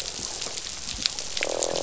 {"label": "biophony, croak", "recorder": "SoundTrap 500"}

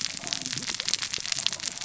{"label": "biophony, cascading saw", "recorder": "SoundTrap 600 or HydroMoth"}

